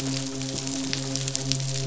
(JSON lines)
{"label": "biophony, midshipman", "recorder": "SoundTrap 500"}